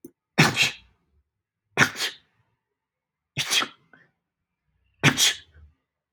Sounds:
Sneeze